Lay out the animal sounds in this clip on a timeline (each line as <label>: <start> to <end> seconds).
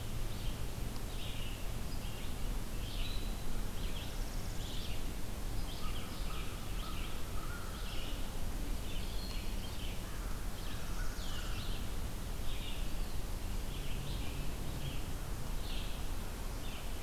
Red-eyed Vireo (Vireo olivaceus): 0.0 to 16.9 seconds
Northern Parula (Setophaga americana): 3.6 to 5.0 seconds
American Crow (Corvus brachyrhynchos): 5.6 to 8.3 seconds
American Crow (Corvus brachyrhynchos): 10.0 to 11.7 seconds
Northern Parula (Setophaga americana): 10.5 to 11.8 seconds